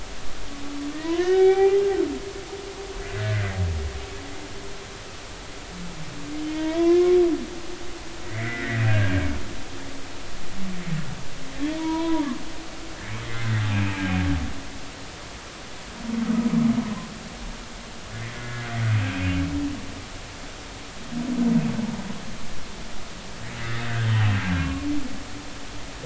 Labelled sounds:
0.9	1.8	humpback whale, 0.80 to 3.8 kHz
4.2	4.5	humpback whale, 1.4 to 1.9 kHz
6.5	7.2	humpback whale, 0.90 to 3.5 kHz
8.2	9.2	humpback whale, 1.4 to 2.3 kHz
11.8	12.3	humpback whale, 0.86 to 2.4 kHz
13.2	13.6	humpback whale, 1.3 to 2.2 kHz
19.1	19.3	humpback whale, 2.2 to 2.6 kHz
23.9	24.9	humpback whale, 1.0 to 3.4 kHz

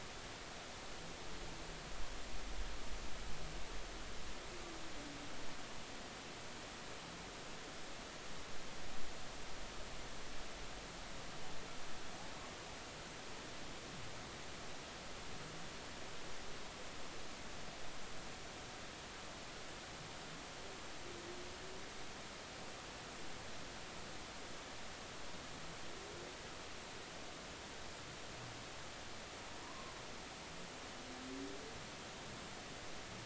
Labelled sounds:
29.6	29.9	humpback whale, 0.93 to 1.1 kHz

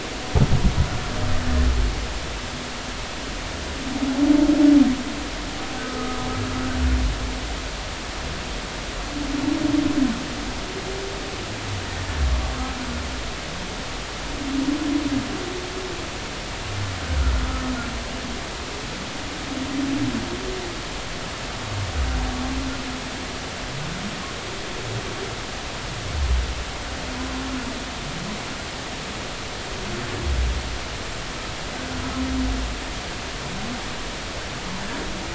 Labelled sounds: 5.8	6.3	humpback whale, 1.2 to 1.3 kHz

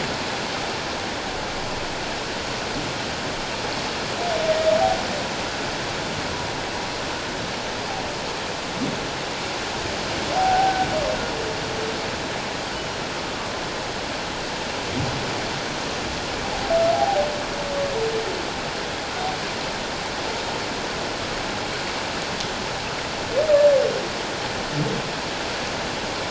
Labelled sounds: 10.4	10.9	humpback whale, 0.78 to 1.6 kHz
16.9	17.3	humpback whale, 0.78 to 0.88 kHz

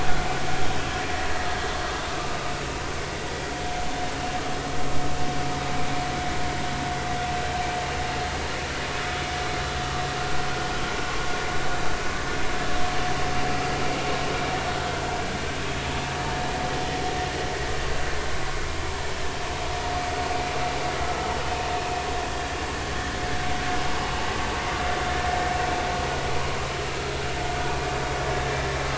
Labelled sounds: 2.2	2.5	vessel noise, 1.1 to 1.3 kHz
26.8	27.1	vessel noise, 1.2 to 1.4 kHz

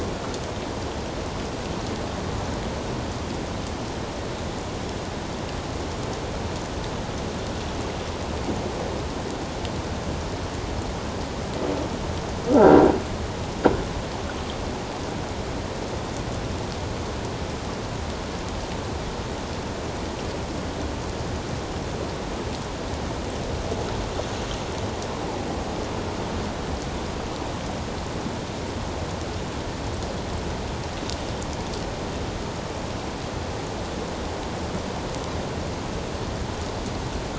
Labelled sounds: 12.5	12.8	croaking sound likely from a nearby submerged object, 1.2 to 1.7 kHz

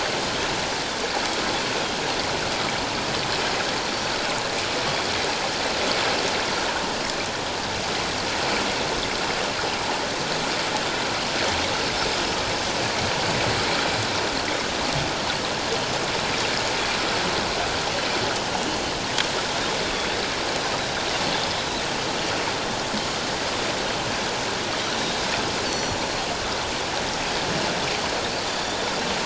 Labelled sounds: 24.8	26.0	Pacific white-sided dolphin, 4.3 to 7.5 kHz
28.5	28.8	Pacific white-sided dolphin, 3.4 to 3.7 kHz

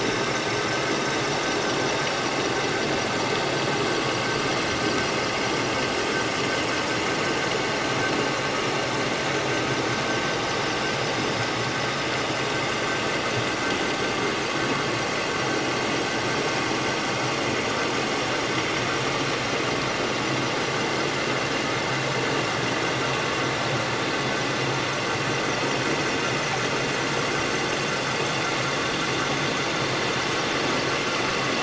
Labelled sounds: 6.2	6.6	vessel noise, 6.7 to 6.9 kHz

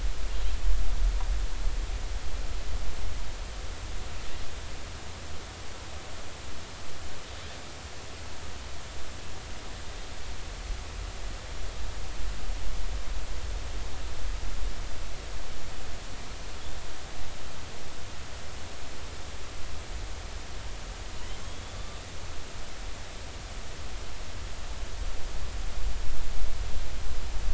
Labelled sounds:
9.8	10.1	killer whale, northern resident, G clan, call N24ii, 3.6 to 3.7 kHz
21.4	21.8	killer whale, northern resident, A clan, AA subclan, 3.2 to 3.5 kHz

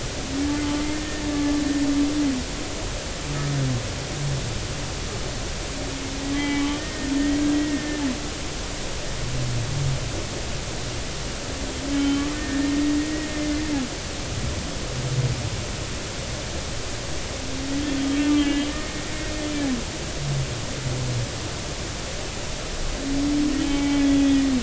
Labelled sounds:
0.9	1.2	humpback whale, 1.8 to 1.9 kHz
6.3	8.0	humpback whale, 1.8 to 3.2 kHz
12.0	13.0	humpback whale, 1.8 to 3.1 kHz
13.4	13.6	humpback whale, 2.0 to 2.1 kHz
18.3	19.0	humpback whale, 1.7 to 3.3 kHz
23.6	24.6	humpback whale, 0.80 to 3.5 kHz

